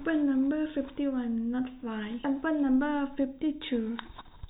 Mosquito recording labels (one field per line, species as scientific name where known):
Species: no mosquito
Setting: cup